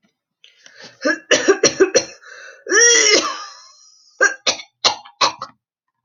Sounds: Cough